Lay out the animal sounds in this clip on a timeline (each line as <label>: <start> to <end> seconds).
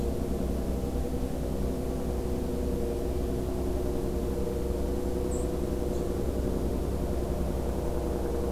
Golden-crowned Kinglet (Regulus satrapa): 4.4 to 5.3 seconds
White-throated Sparrow (Zonotrichia albicollis): 5.3 to 5.5 seconds